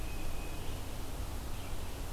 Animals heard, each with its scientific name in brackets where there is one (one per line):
Red-eyed Vireo (Vireo olivaceus)
Tufted Titmouse (Baeolophus bicolor)